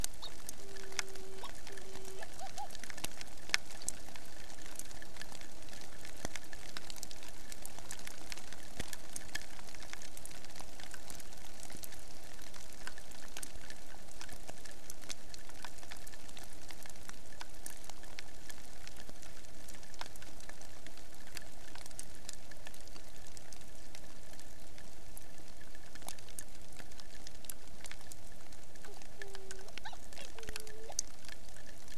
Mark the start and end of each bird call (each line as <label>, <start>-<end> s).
Hawaiian Petrel (Pterodroma sandwichensis), 0.2-2.7 s
Hawaiian Petrel (Pterodroma sandwichensis), 28.8-31.0 s